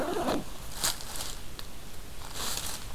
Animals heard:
forest ambience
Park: Hubbard Brook Experimental Forest